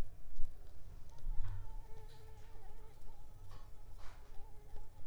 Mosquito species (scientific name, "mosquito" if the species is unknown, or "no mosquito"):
Mansonia uniformis